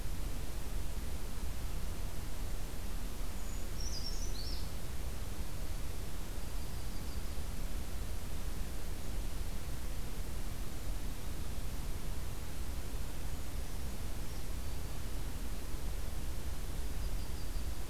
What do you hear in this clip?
Black-throated Green Warbler, Yellow-rumped Warbler, Brown Creeper